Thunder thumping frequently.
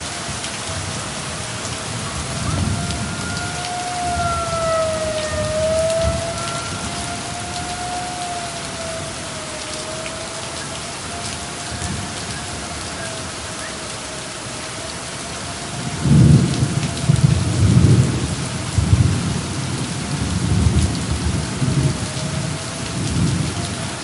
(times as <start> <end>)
16.0 24.0